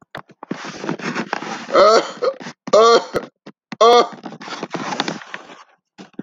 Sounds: Cough